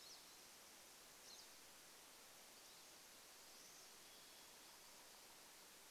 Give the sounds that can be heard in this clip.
Pine Siskin call, Varied Thrush song